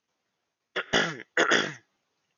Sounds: Throat clearing